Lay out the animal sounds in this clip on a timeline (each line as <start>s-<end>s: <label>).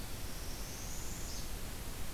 0.1s-1.5s: Northern Parula (Setophaga americana)